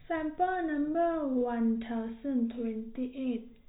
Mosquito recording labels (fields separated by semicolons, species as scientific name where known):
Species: no mosquito; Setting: cup